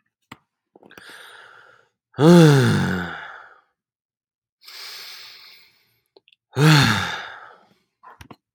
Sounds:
Sigh